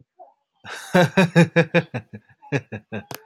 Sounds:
Laughter